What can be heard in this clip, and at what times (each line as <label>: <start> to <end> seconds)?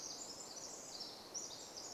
Pacific Wren song: 0 to 2 seconds